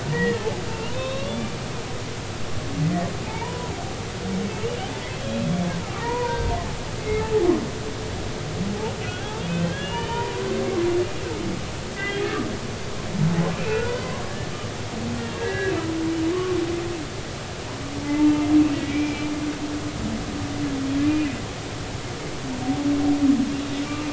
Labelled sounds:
0.1	1.5	humpback whale, 0.99 to 3.9 kHz
3.3	3.5	humpback whale, 2.1 to 2.4 kHz
4.3	5.4	humpback whale, 0.83 to 3.4 kHz
6.0	7.3	humpback whale, 0.86 to 2.5 kHz
9.1	10.4	humpback whale, 0.86 to 3.5 kHz
12.0	12.2	humpback whale, 1.5 to 2.1 kHz
13.5	14.1	humpback whale, 1.3 to 4.6 kHz
15.2	15.7	humpback whale, 1.5 to 2.8 kHz
18.7	19.3	humpback whale, 1.9 to 2.5 kHz

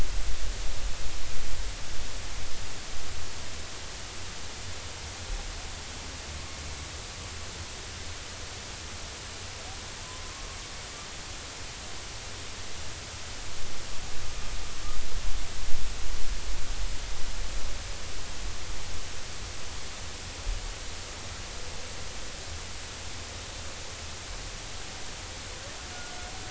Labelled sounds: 10.0	10.5	humpback whale, 0.96 to 1.2 kHz

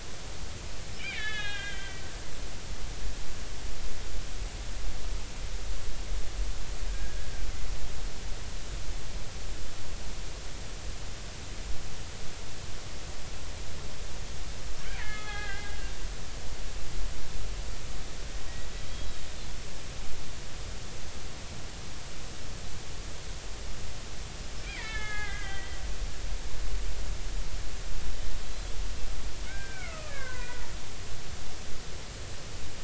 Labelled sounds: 1.2	3.0	killer whale, Bigg's (transient), 1.5 to 3.9 kHz
6.9	7.3	killer whale, Bigg's (transient), 1.5 to 1.7 kHz
15.0	15.8	killer whale, Bigg's (transient), 0.80 to 4.3 kHz
24.6	25.8	killer whale, Bigg's (transient), 1.2 to 3.6 kHz
28.5	28.7	killer whale, Bigg's (transient), 3.2 to 4.1 kHz
29.5	30.6	killer whale, Bigg's (transient), 0.93 to 2.8 kHz

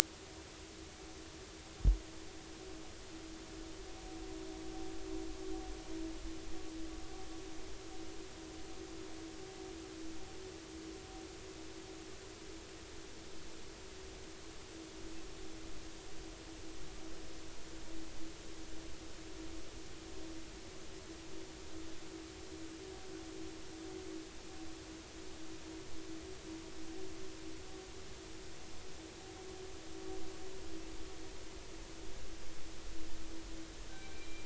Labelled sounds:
33.9	34.4	killer whale, northern resident, 1.5 to 2.4 kHz

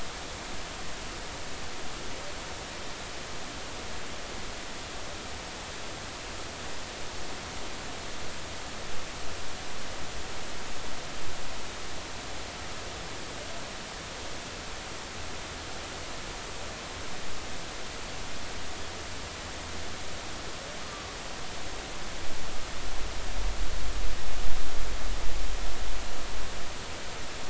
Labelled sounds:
20.8	21.2	humpback whale, 1.1 to 1.3 kHz

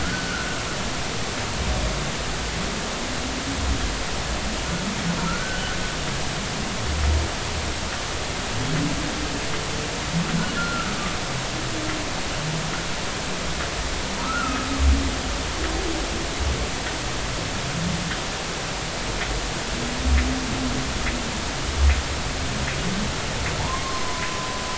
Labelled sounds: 0.0	0.6	humpback whale, 1.3 to 4.6 kHz
5.2	5.6	humpback whale, 1.3 to 1.6 kHz
10.6	11.0	humpback whale, 1.2 to 1.5 kHz
14.2	14.7	humpback whale, 1.2 to 1.5 kHz
23.6	24.4	humpback whale, 0.83 to 1.1 kHz

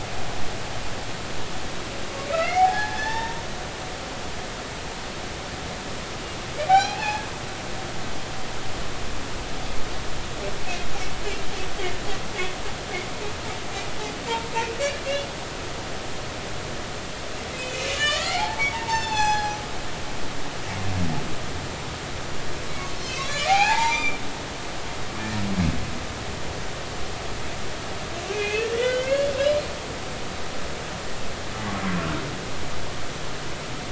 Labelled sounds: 2.3	3.4	humpback whale, 0.80 to 3.7 kHz
6.7	7.3	humpback whale, 0.80 to 5.8 kHz
17.6	19.6	humpback whale, 0.80 to 7.3 kHz
23.0	24.2	humpback whale, 0.80 to 6.4 kHz
28.3	29.3	humpback whale, 1.4 to 3.2 kHz

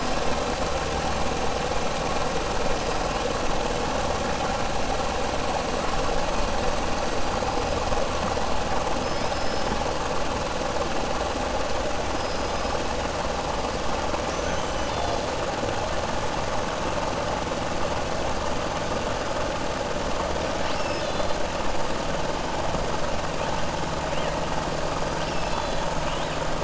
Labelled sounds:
9.0	9.8	killer whale, 4.4 to 5.4 kHz

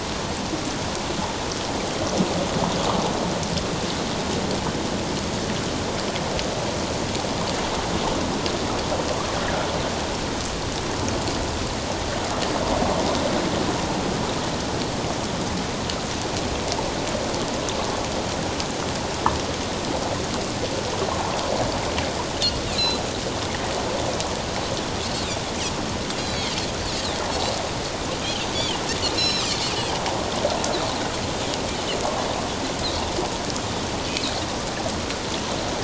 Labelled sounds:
9.4	9.7	water noise, 1.3 to 2.0 kHz
22.7	23.0	Pacific white-sided dolphin, 3.8 to 4.2 kHz
26.2	26.5	Pacific white-sided dolphin, 3.8 to 4.2 kHz
29.2	29.5	Pacific white-sided dolphin, 2.6 to 5.5 kHz

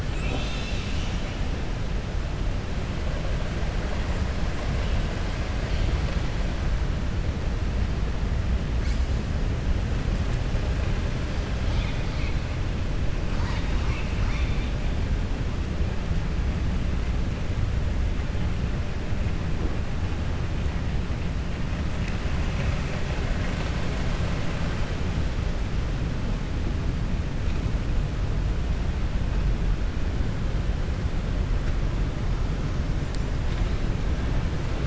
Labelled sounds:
13.3	14.7	killer whale, southern resident, 0.93 to 7.0 kHz

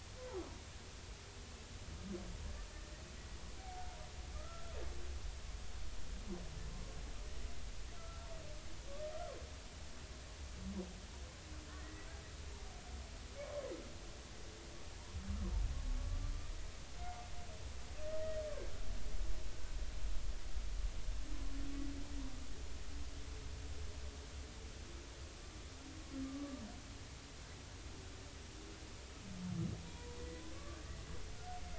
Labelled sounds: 4.3	4.7	humpback whale, 1.2 to 1.4 kHz
8.0	8.3	humpback whale, 1.3 to 1.4 kHz
11.7	12.1	humpback whale, 1.7 to 2.0 kHz
26.2	26.6	humpback whale, 1.1 to 1.2 kHz
29.8	30.8	humpback whale, 0.90 to 2.0 kHz

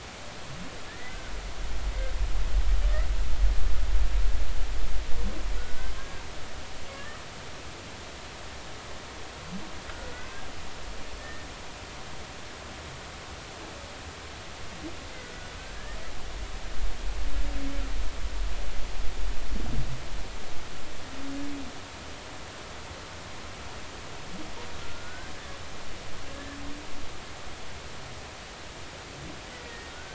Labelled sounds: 5.6	6.2	humpback whale, 1.4 to 1.7 kHz
6.9	7.2	humpback whale, 1.1 to 1.3 kHz
9.9	10.3	humpback whale, 1.3 to 1.6 kHz
12.2	12.5	humpback whale, 1.8 to 2.0 kHz
15.2	15.5	humpback whale, 1.4 to 1.6 kHz
24.8	25.3	humpback whale, 1.3 to 1.7 kHz
29.6	30.1	humpback whale, 1.4 to 2.0 kHz

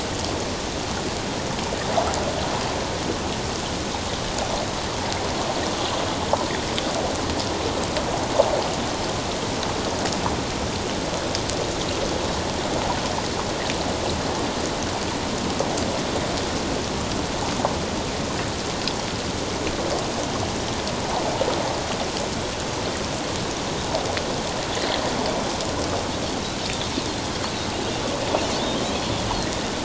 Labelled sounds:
26.6	26.9	Pacific white-sided dolphin, 3.3 to 3.8 kHz

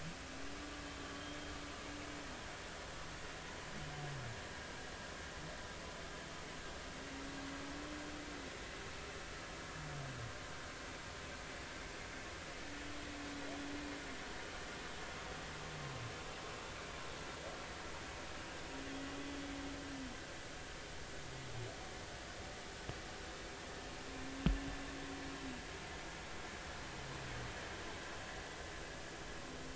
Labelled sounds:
1.1	1.4	humpback whale, 3.1 to 3.3 kHz

